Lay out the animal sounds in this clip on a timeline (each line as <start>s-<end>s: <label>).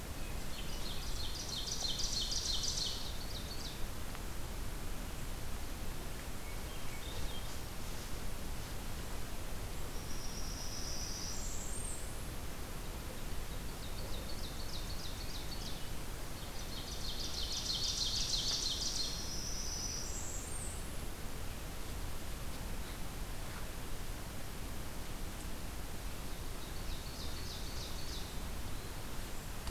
0.2s-3.9s: Ovenbird (Seiurus aurocapilla)
6.3s-7.5s: Swainson's Thrush (Catharus ustulatus)
9.9s-12.4s: Blackburnian Warbler (Setophaga fusca)
13.4s-15.9s: Ovenbird (Seiurus aurocapilla)
16.5s-19.0s: Ovenbird (Seiurus aurocapilla)
18.6s-21.4s: Blackburnian Warbler (Setophaga fusca)
26.6s-28.4s: Ovenbird (Seiurus aurocapilla)